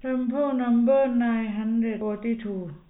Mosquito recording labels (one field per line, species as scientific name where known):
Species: no mosquito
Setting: cup